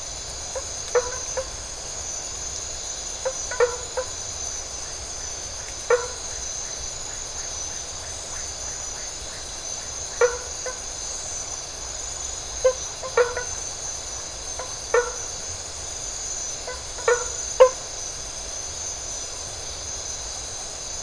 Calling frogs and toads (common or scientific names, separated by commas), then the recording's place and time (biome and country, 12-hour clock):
blacksmith tree frog
Atlantic Forest, Brazil, 12:15am